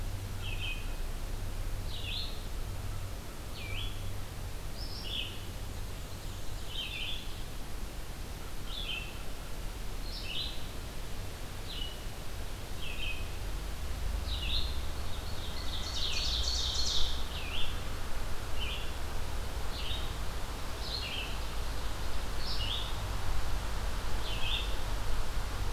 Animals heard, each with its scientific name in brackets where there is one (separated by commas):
Red-eyed Vireo (Vireo olivaceus), Ovenbird (Seiurus aurocapilla), Blue Jay (Cyanocitta cristata), Black-and-white Warbler (Mniotilta varia)